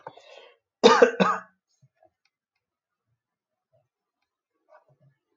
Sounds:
Cough